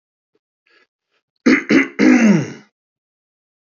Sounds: Throat clearing